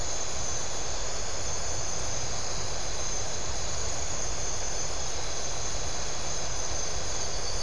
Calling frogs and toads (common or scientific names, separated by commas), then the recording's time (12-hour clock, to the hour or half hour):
none
midnight